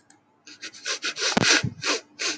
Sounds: Sniff